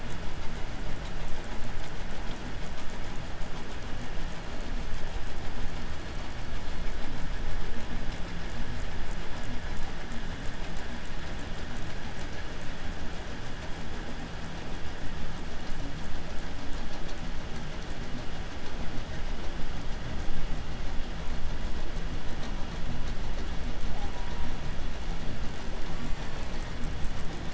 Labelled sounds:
3.6	5.1	killer whale, 3.6 to 4.8 kHz
5.6	7.2	killer whale, 3.8 to 8.0 kHz
23.8	25.0	killer whale, southern resident, J pod, call S04, 0.26 to 1.3 kHz
25.8	27.1	killer whale, southern resident, J pod, call S04, 0.49 to 8.0 kHz

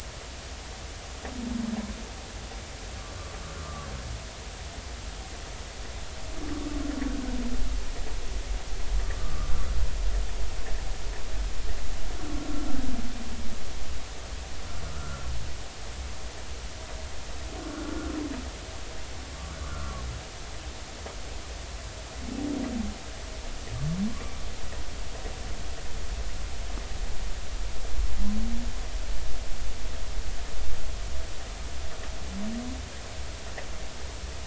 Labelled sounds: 3.6	3.9	humpback whale, 1.0 to 1.2 kHz
9.2	9.5	humpback whale, 1.1 to 1.3 kHz
14.9	15.3	humpback whale, 1.2 to 1.5 kHz
19.7	20.0	humpback whale, 1.1 to 1.5 kHz

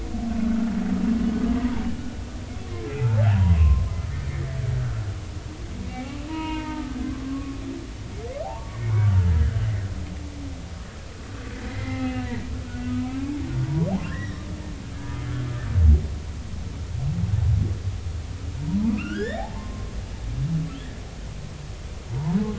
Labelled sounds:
2.9	3.9	humpback whale, 0.80 to 2.7 kHz
5.8	7.6	humpback whale, 0.86 to 2.9 kHz
8.4	9.7	humpback whale, 0.80 to 2.3 kHz
11.7	12.5	humpback whale, 0.80 to 2.8 kHz
13.7	14.5	humpback whale, 0.83 to 5.8 kHz
18.6	20.0	humpback whale, 0.80 to 5.4 kHz
22.1	22.4	humpback whale, 0.83 to 1.1 kHz

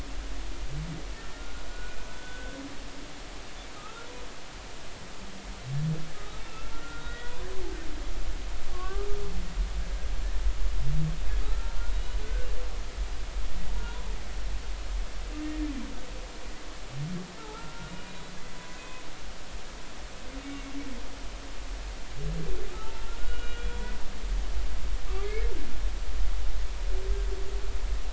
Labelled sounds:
1.1	2.6	humpback whale, 1.4 to 3.6 kHz
3.7	4.1	humpback whale, 1.2 to 1.4 kHz
6.4	9.0	humpback whale, 0.93 to 2.8 kHz
9.7	10.1	humpback whale, 1.0 to 1.3 kHz
11.4	12.5	humpback whale, 1.2 to 3.0 kHz
13.7	14.0	humpback whale, 0.90 to 1.1 kHz
15.4	15.7	humpback whale, 1.7 to 1.9 kHz
17.4	18.3	humpback whale, 0.80 to 4.0 kHz
18.8	19.0	humpback whale, 2.5 to 2.6 kHz
22.7	23.8	humpback whale, 1.2 to 3.4 kHz
25.1	25.5	humpback whale, 1.1 to 2.6 kHz

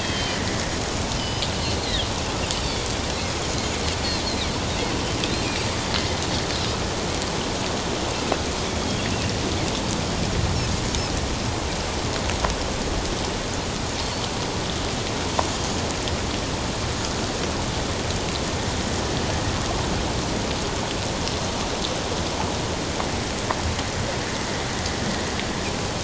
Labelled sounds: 0.0	1.5	Pacific white-sided dolphin, 2.9 to 5.1 kHz
8.8	9.1	Pacific white-sided dolphin, 3.2 to 3.5 kHz

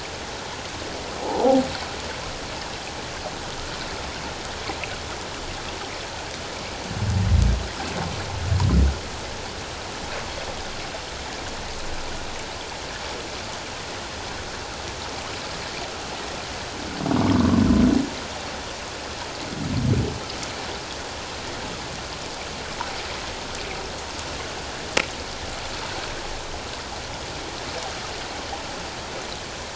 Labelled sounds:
1.2	1.6	humpback whale, 0.78 to 1.0 kHz
17.3	17.6	humpback whale, 1.0 to 1.2 kHz

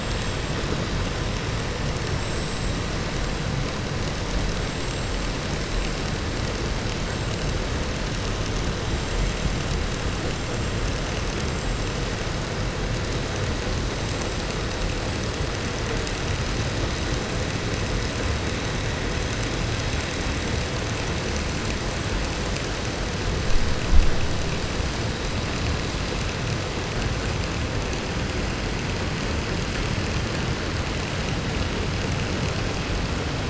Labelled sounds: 2.1	2.7	vessel noise, 7.1 to 8.0 kHz
11.3	11.8	vessel noise, 6.8 to 8.0 kHz

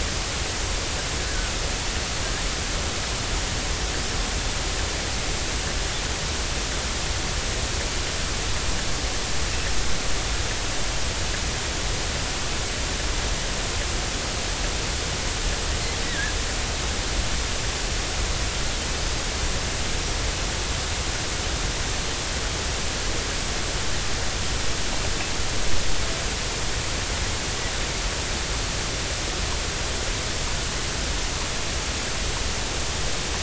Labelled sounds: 1.3	1.5	killer whale, 1.3 to 1.7 kHz
16.0	16.3	killer whale, 1.6 to 2.0 kHz

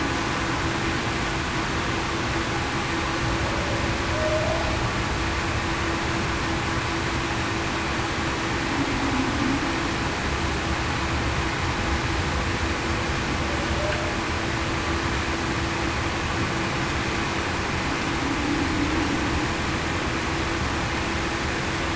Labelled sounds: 4.1	4.6	humpback whale, 0.58 to 0.73 kHz

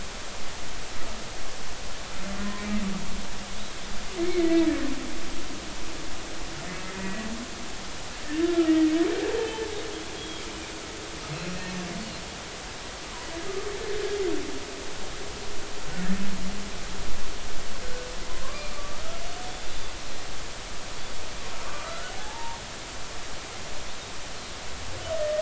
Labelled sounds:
2.4	2.7	humpback whale, 1.8 to 1.9 kHz
4.4	4.8	humpback whale, 1.7 to 2.0 kHz
6.9	7.2	humpback whale, 1.8 to 2.0 kHz
8.2	8.9	humpback whale, 1.2 to 2.0 kHz
10.2	10.5	humpback whale, 3.1 to 3.4 kHz
11.3	11.5	humpback whale, 4.0 to 4.3 kHz
15.9	16.2	humpback whale, 1.6 to 2.0 kHz
18.3	19.0	humpback whale, 0.96 to 2.5 kHz
19.7	19.9	humpback whale, 3.4 to 3.6 kHz
21.7	22.6	humpback whale, 0.80 to 1.5 kHz

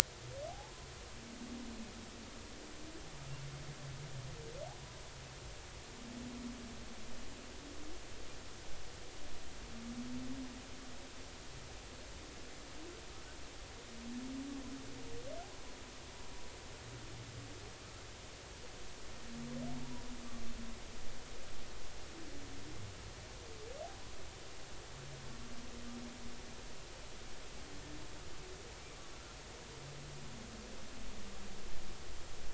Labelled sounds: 0.5	0.7	humpback whale, 0.80 to 0.93 kHz

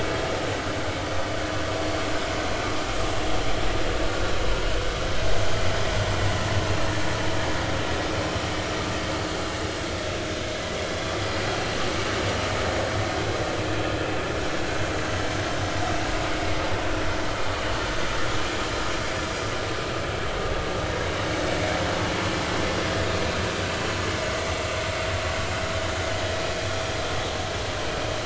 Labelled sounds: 16.3	16.5	vessel noise, 2.1 to 2.2 kHz

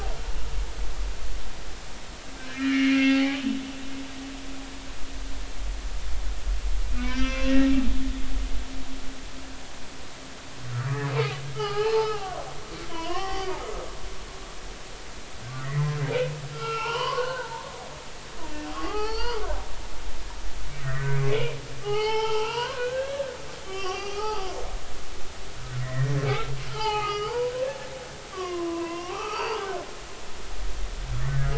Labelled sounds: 2.5	3.4	humpback whale, 0.80 to 3.0 kHz
7.0	7.7	humpback whale, 1.0 to 3.2 kHz
11.5	12.4	humpback whale, 0.80 to 5.3 kHz
12.9	13.5	humpback whale, 0.80 to 5.7 kHz
16.5	17.5	humpback whale, 0.80 to 3.2 kHz
18.7	19.4	humpback whale, 0.80 to 5.0 kHz
20.8	21.3	humpback whale, 1.3 to 2.4 kHz
21.8	24.6	humpback whale, 0.80 to 6.1 kHz
25.8	27.5	humpback whale, 0.80 to 4.7 kHz
28.3	29.6	humpback whale, 0.80 to 4.9 kHz

